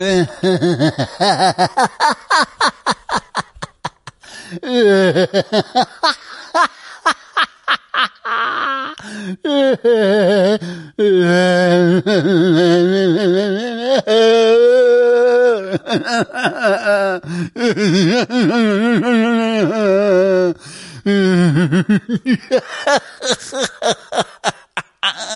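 A man laughs with a weird, fluctuating tone that shifts between funny and creepy with uneven pacing. 0:00.1 - 0:25.4

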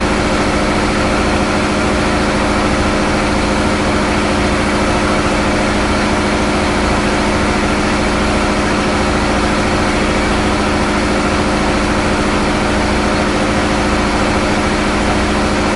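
A loud diesel engine roars as the ferry moves through the water, its powerful hum dominating the onboard sounds. 0:00.0 - 0:15.8

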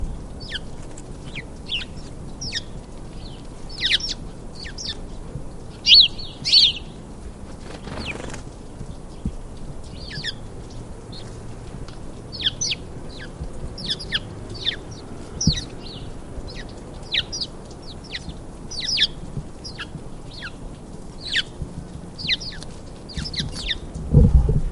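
Leaves and branches rustling in a gentle wind. 0:00.0 - 0:24.7
A bird chirps. 0:00.5 - 0:00.6
A bird chirps. 0:01.3 - 0:02.6
A bird chirps. 0:03.7 - 0:04.1
A bird chirps. 0:04.7 - 0:05.0
A bird chirps loudly. 0:05.8 - 0:06.7
Bird wings flapping. 0:07.7 - 0:08.5
A bird chirps. 0:10.0 - 0:10.4
A bird chirps. 0:12.3 - 0:12.8
A bird chirps. 0:13.4 - 0:15.7
A bird chirps. 0:17.1 - 0:17.5
A bird chirps. 0:18.1 - 0:19.1
A bird chirps. 0:19.7 - 0:20.6
A bird chirps. 0:21.2 - 0:21.5
A bird chirps. 0:22.1 - 0:23.8
Microphone fumbling sounds. 0:24.1 - 0:24.7

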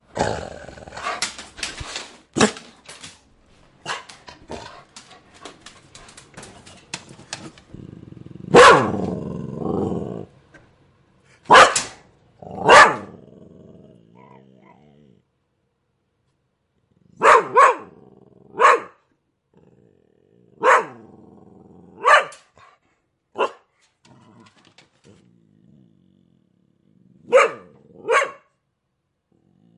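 A dog growls and walks on wooden flooring. 0:00.0 - 0:08.5
A dog barks loudly and growls inside a room. 0:08.5 - 0:13.7
A dog growls softly inside a room. 0:13.7 - 0:16.3
A dog barks loudly and growls inside a room. 0:17.2 - 0:23.7
A dog growls softly inside a room. 0:24.3 - 0:27.2
A dog barks loudly inside a room. 0:27.3 - 0:28.4

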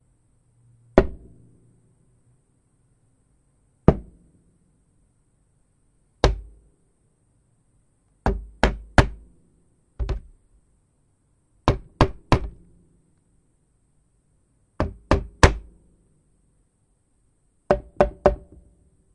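Heavy tapping on wood. 0:00.9 - 0:01.1
Heavy tapping on wood. 0:03.8 - 0:04.1
Heavy tapping on wood. 0:06.1 - 0:06.4
Heavy tapping on wood. 0:08.2 - 0:09.2
Dull thudding sounds. 0:10.0 - 0:10.2
Heavy tapping on wood. 0:11.6 - 0:12.5
Heavy tapping on wood. 0:14.8 - 0:15.6
A hollow tapping sound. 0:17.6 - 0:18.4

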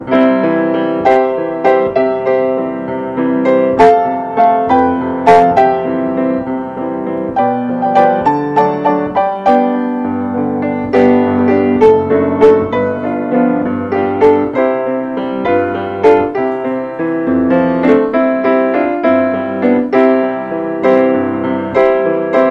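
A grand piano plays softly with an irregular pattern and frequent crisp crescendos. 0:00.0 - 0:22.5

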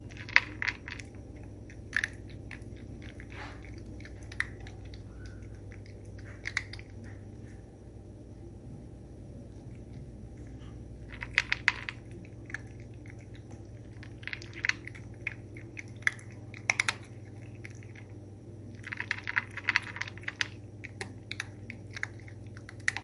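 An animal crunches feed quietly. 0:00.0 - 0:23.0

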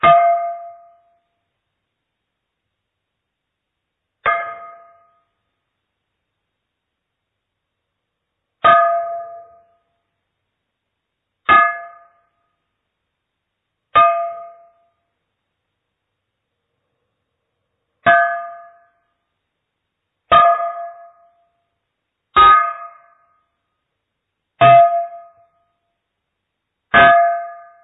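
A loud, pure ding sound from a glass bottle being struck. 0:00.0 - 0:01.2
A faint dinging sound from a glass bottle being hit. 0:03.6 - 0:05.4
A loud, clear ding from a glass bottle being struck. 0:08.4 - 0:09.7
A loud, clear ding from a glass bottle being struck. 0:11.0 - 0:12.3
A loud, clear ding from a glass bottle being struck. 0:13.6 - 0:14.9
A loud, clear ding from a glass bottle being struck. 0:17.5 - 0:19.1
A loud, clear ding from a glass bottle being struck. 0:19.8 - 0:21.3
A loud, clear ding from a glass bottle being struck. 0:22.1 - 0:23.4
A loud, clear ding from a glass bottle being struck. 0:24.4 - 0:25.6
A loud, clear ding from a glass bottle being struck. 0:26.6 - 0:27.8

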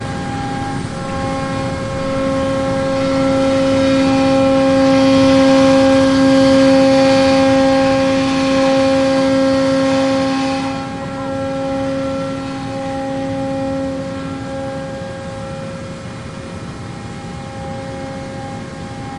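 An oil pump produces a continuous harsh hum with varying volume. 0:00.0 - 0:19.2

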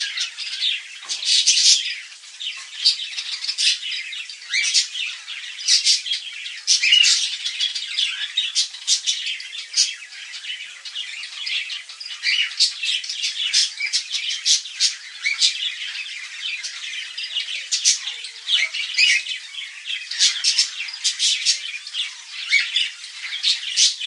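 A bird chirping. 0:00.0 - 0:24.1
Many birds are chirping. 0:00.0 - 0:24.1

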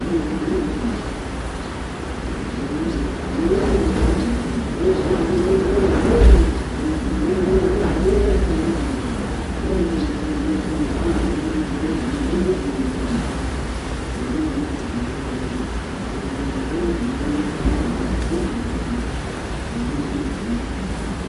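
Wind rapidly alternating between fast and slow speeds. 0:00.0 - 0:01.2
White noise hums quietly in the background. 0:00.0 - 0:21.3
Wind blowing rapidly, alternating between fast and slow speeds. 0:02.7 - 0:15.2
Wind blowing at a semi-constant rate. 0:14.1 - 0:21.3

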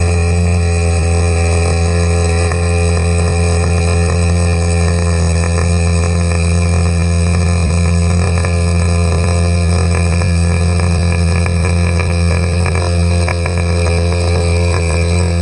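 The engine of a small boat runs at medium speed. 0:00.0 - 0:15.4

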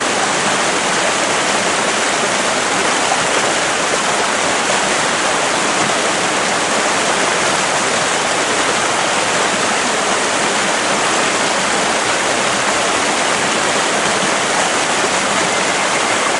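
A very loud static noise. 0:00.0 - 0:16.4

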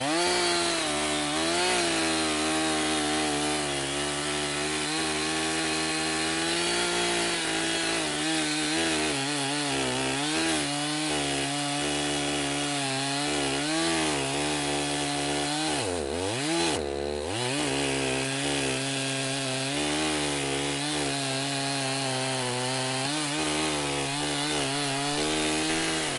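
A continuous, steady chainsaw sound with a high-pitched whining quality. 0:00.0 - 0:15.8
Two sudden, irregular disruptions in the chainsaw sound resembling brief hiccups. 0:15.8 - 0:17.6
A continuous, steady chainsaw sound with a high-pitched whining quality. 0:17.5 - 0:26.2

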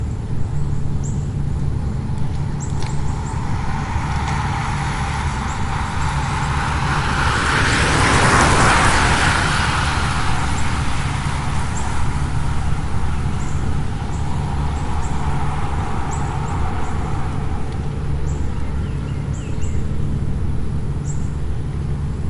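Traffic noise in the distance. 0:00.0 - 0:22.3
Birds chirping quietly in the distance. 0:00.1 - 0:03.7
A vehicle passes by, getting louder and then fading away. 0:01.7 - 0:14.0
Bicycles are passing by on a road. 0:01.7 - 0:18.2
Birds chirp quietly in the distance. 0:05.2 - 0:05.8
A bird chirps quietly and repeatedly in the distance. 0:10.4 - 0:22.0

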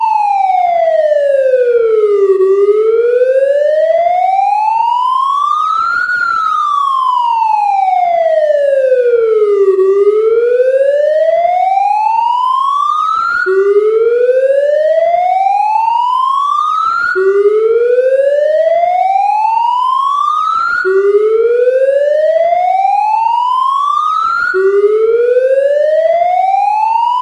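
A continuously ringing siren. 0:00.0 - 0:13.8
A siren rings continuously with some swishing background noise. 0:13.8 - 0:27.2

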